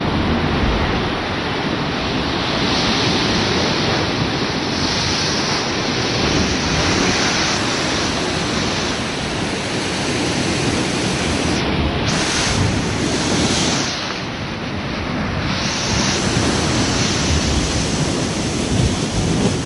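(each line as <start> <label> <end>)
0.1 Waves crash on the seashore. 19.3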